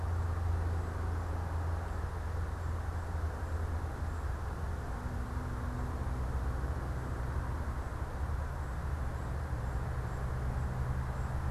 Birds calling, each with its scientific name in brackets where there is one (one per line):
unidentified bird